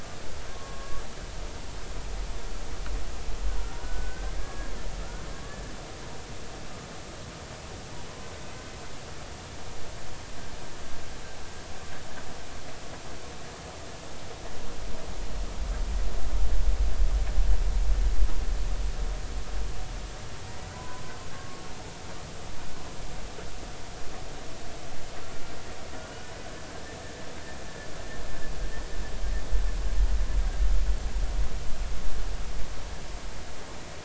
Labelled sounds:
0.5	1.0	humpback whale, 1.0 to 1.2 kHz
3.8	5.3	humpback whale, 1.2 to 1.8 kHz
8.1	8.3	humpback whale, 0.99 to 1.1 kHz
20.7	21.6	humpback whale, 0.96 to 1.2 kHz

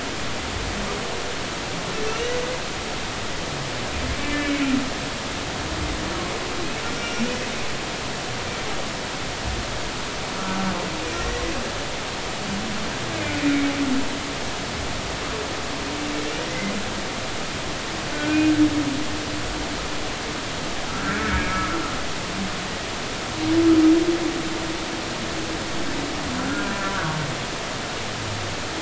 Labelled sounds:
2.1	2.3	humpback whale, 2.6 to 2.9 kHz
4.1	4.7	humpback whale, 1.7 to 2.4 kHz
6.9	7.3	humpback whale, 1.3 to 5.7 kHz
11.1	11.4	humpback whale, 1.8 to 2.0 kHz
18.1	18.5	humpback whale, 1.4 to 2.5 kHz
20.9	21.7	humpback whale, 1.2 to 2.3 kHz
26.4	27.2	humpback whale, 1.1 to 1.5 kHz

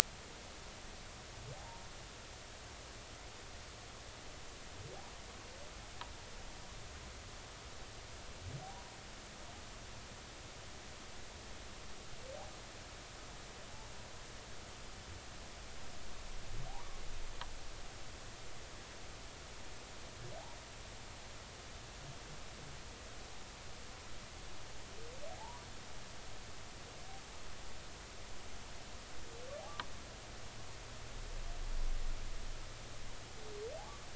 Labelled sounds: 1.6	1.8	humpback whale, 0.80 to 0.96 kHz
25.3	25.7	humpback whale, 0.80 to 1.2 kHz

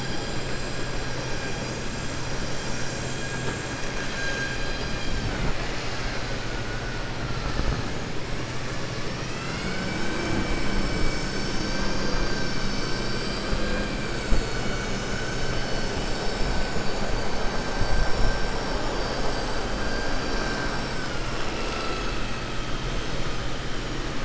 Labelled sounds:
13.3	13.9	vessel noise, 1.1 to 5.6 kHz
15.5	16.2	vessel noise, 3.5 to 7.8 kHz

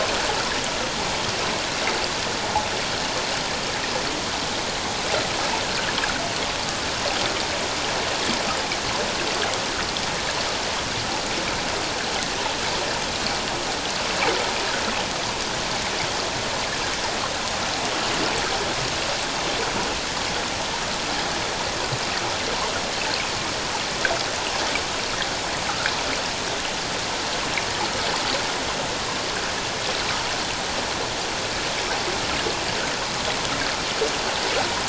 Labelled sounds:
25.7	26.0	water noise, 1.2 to 1.8 kHz

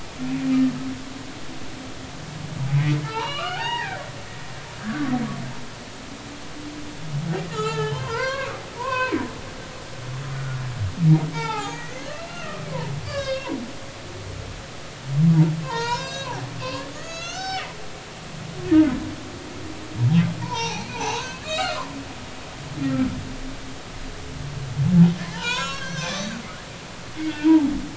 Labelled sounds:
3.0	4.0	humpback whale, 0.80 to 4.8 kHz
4.8	5.1	humpback whale, 1.1 to 1.8 kHz
7.5	9.1	humpback whale, 0.83 to 4.5 kHz
10.3	10.6	humpback whale, 1.3 to 1.5 kHz
11.3	13.5	humpback whale, 0.80 to 5.0 kHz
15.6	17.7	humpback whale, 0.80 to 7.7 kHz
20.4	21.8	humpback whale, 0.80 to 6.1 kHz
22.8	23.1	humpback whale, 1.3 to 1.4 kHz
25.3	26.2	humpback whale, 0.80 to 6.9 kHz
27.4	27.7	humpback whale, 0.80 to 1.0 kHz

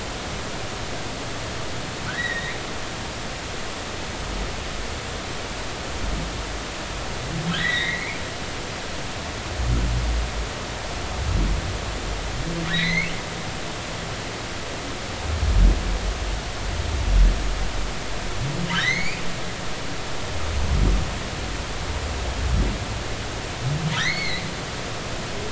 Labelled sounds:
2.1	2.5	humpback whale, 1.2 to 4.0 kHz
7.6	8.2	humpback whale, 1.8 to 4.1 kHz
12.7	13.1	humpback whale, 1.7 to 4.4 kHz
18.7	19.2	humpback whale, 1.5 to 4.8 kHz
23.9	24.4	humpback whale, 1.2 to 4.5 kHz

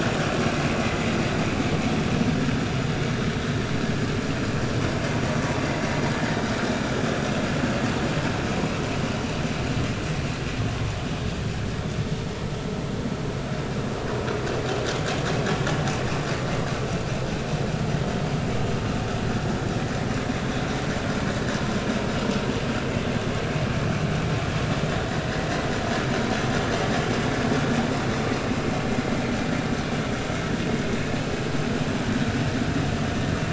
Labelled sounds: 5.6	5.9	vessel noise, 1.9 to 2.1 kHz

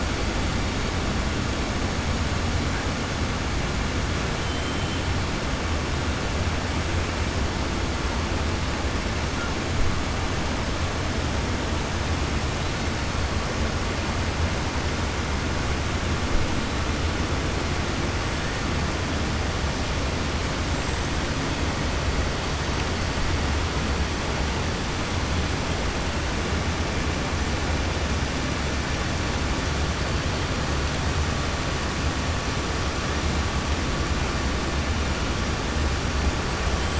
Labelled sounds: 20.6	21.0	killer whale, 6.6 to 7.9 kHz

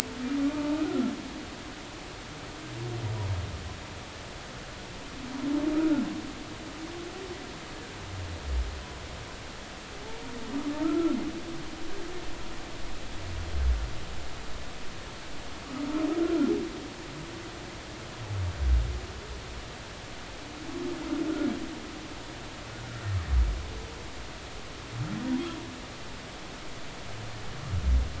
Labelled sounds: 10.8	11.2	humpback whale, 1.2 to 1.4 kHz

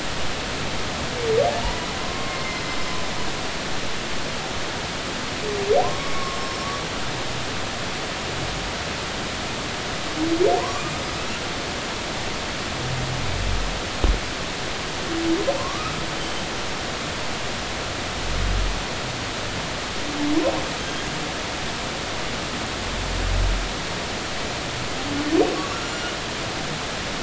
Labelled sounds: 2.0	2.6	humpback whale, 0.99 to 2.2 kHz
5.8	6.6	humpback whale, 0.96 to 5.6 kHz
10.6	10.9	humpback whale, 0.90 to 1.2 kHz
15.5	16.0	humpback whale, 0.86 to 1.4 kHz
25.9	26.1	humpback whale, 2.8 to 3.0 kHz

